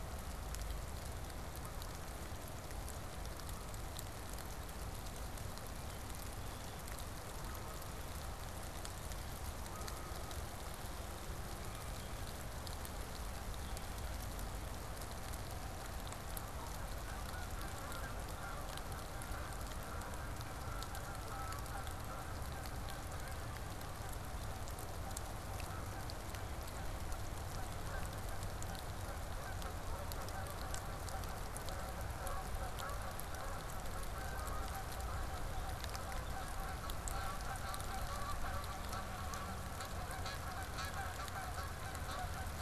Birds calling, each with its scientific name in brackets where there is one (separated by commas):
Red-winged Blackbird (Agelaius phoeniceus), Canada Goose (Branta canadensis)